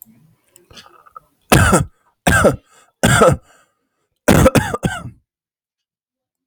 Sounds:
Cough